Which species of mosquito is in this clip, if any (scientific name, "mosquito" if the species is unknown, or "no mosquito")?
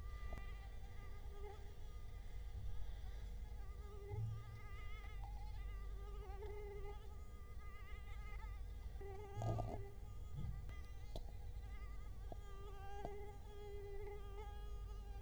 Culex quinquefasciatus